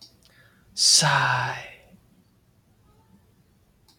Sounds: Sigh